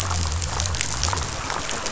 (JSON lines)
{"label": "biophony", "recorder": "SoundTrap 500"}